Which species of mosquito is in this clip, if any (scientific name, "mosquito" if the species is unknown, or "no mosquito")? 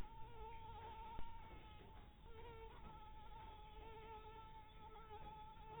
mosquito